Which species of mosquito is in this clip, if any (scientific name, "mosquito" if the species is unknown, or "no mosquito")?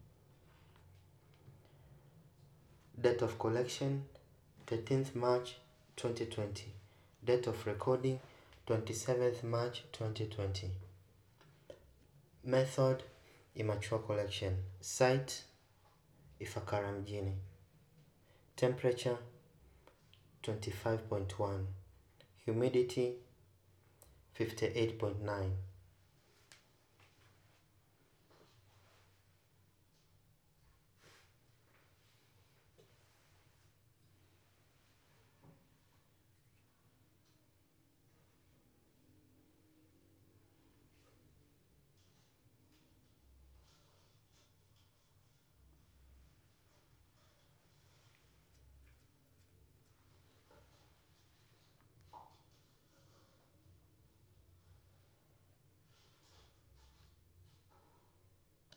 no mosquito